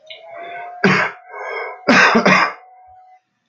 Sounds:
Cough